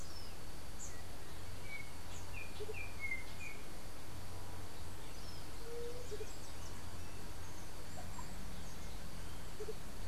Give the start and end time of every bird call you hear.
0.0s-10.0s: Andean Motmot (Momotus aequatorialis)
0.8s-3.7s: Yellow-backed Oriole (Icterus chrysater)
5.5s-6.1s: White-tipped Dove (Leptotila verreauxi)

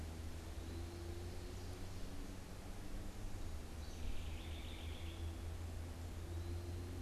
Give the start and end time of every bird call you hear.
3.6s-5.3s: House Wren (Troglodytes aedon)

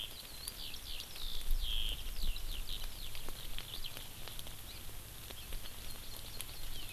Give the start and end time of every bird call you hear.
0.0s-3.9s: Eurasian Skylark (Alauda arvensis)
5.6s-6.9s: Hawaii Amakihi (Chlorodrepanis virens)

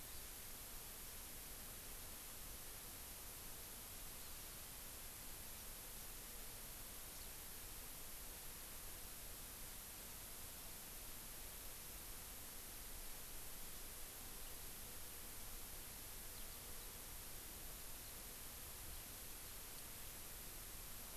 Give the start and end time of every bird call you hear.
7.1s-7.3s: Eurasian Skylark (Alauda arvensis)
16.3s-16.6s: Eurasian Skylark (Alauda arvensis)

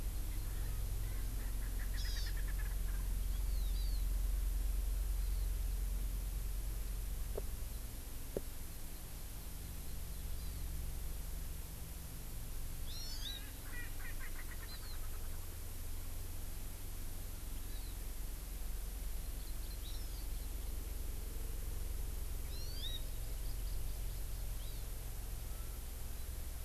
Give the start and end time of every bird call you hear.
0.4s-3.0s: Erckel's Francolin (Pternistis erckelii)
1.9s-2.3s: Hawaii Amakihi (Chlorodrepanis virens)
3.2s-4.0s: Hawaii Amakihi (Chlorodrepanis virens)
10.3s-10.6s: Hawaii Amakihi (Chlorodrepanis virens)
12.9s-13.3s: Hawaii Amakihi (Chlorodrepanis virens)
13.1s-15.3s: Erckel's Francolin (Pternistis erckelii)
14.6s-14.9s: Hawaii Amakihi (Chlorodrepanis virens)
17.6s-17.9s: Hawaii Amakihi (Chlorodrepanis virens)
19.3s-20.7s: Hawaii Amakihi (Chlorodrepanis virens)
22.4s-24.9s: Hawaii Amakihi (Chlorodrepanis virens)

